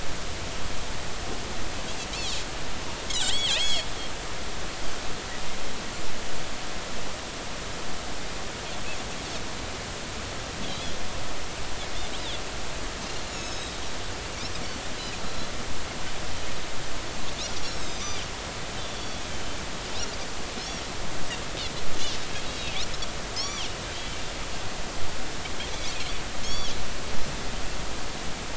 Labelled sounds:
3.1	3.9	Pacific white-sided dolphin, 1.9 to 7.9 kHz
13.3	13.8	Pacific white-sided dolphin, 3.7 to 7.1 kHz
17.8	19.2	Pacific white-sided dolphin, 3.3 to 7.9 kHz
20.6	20.9	Pacific white-sided dolphin, 5.1 to 5.8 kHz
22.4	22.7	Pacific white-sided dolphin, 3.7 to 3.9 kHz
23.4	23.7	Pacific white-sided dolphin, 2.6 to 7.1 kHz
26.4	26.7	Pacific white-sided dolphin, 2.9 to 5.8 kHz

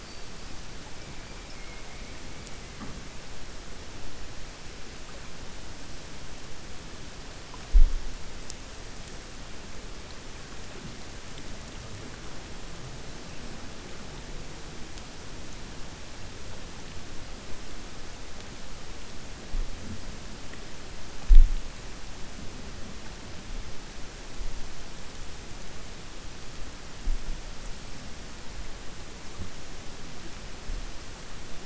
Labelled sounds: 1.5	2.1	killer whale, 2.1 to 2.9 kHz

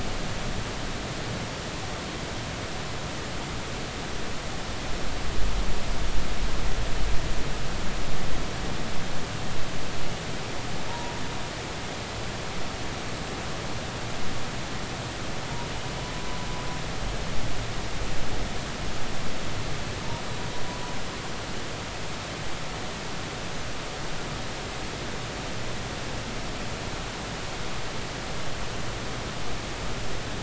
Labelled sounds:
10.9	11.1	humpback whale, 0.90 to 1.0 kHz

